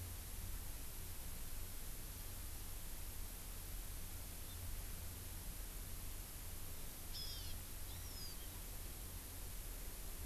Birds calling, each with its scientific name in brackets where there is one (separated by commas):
Hawaiian Hawk (Buteo solitarius)